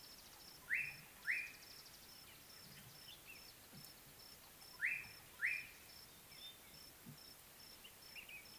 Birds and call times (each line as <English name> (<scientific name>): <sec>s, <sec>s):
Slate-colored Boubou (Laniarius funebris): 4.9s